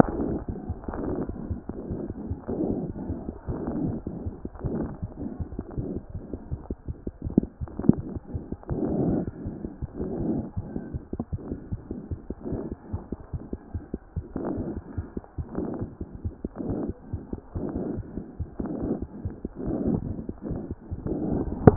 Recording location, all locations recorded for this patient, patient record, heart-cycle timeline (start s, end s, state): mitral valve (MV)
mitral valve (MV)
#Age: Infant
#Sex: Male
#Height: nan
#Weight: nan
#Pregnancy status: False
#Murmur: Absent
#Murmur locations: nan
#Most audible location: nan
#Systolic murmur timing: nan
#Systolic murmur shape: nan
#Systolic murmur grading: nan
#Systolic murmur pitch: nan
#Systolic murmur quality: nan
#Diastolic murmur timing: nan
#Diastolic murmur shape: nan
#Diastolic murmur grading: nan
#Diastolic murmur pitch: nan
#Diastolic murmur quality: nan
#Outcome: Abnormal
#Campaign: 2014 screening campaign
0.00	10.56	unannotated
10.56	10.61	S1
10.61	10.74	systole
10.74	10.81	S2
10.81	10.94	diastole
10.94	11.00	S1
11.00	11.14	systole
11.14	11.22	S2
11.22	11.33	diastole
11.33	11.38	S1
11.38	11.50	systole
11.50	11.56	S2
11.56	11.72	diastole
11.72	11.77	S1
11.77	11.90	systole
11.90	11.96	S2
11.96	12.12	diastole
12.12	12.18	S1
12.18	12.30	systole
12.30	12.35	S2
12.35	12.52	diastole
12.52	12.59	S1
12.59	12.71	systole
12.71	12.76	S2
12.76	12.93	diastole
12.93	12.99	S1
12.99	13.12	systole
13.12	13.18	S2
13.18	13.34	diastole
13.34	13.41	S1
13.41	13.52	systole
13.52	13.58	S2
13.58	13.74	diastole
13.74	13.81	S1
13.81	13.94	systole
13.94	14.00	S2
14.00	14.16	diastole
14.16	14.24	S1
14.24	14.36	systole
14.36	14.42	S2
14.42	14.59	diastole
14.59	21.76	unannotated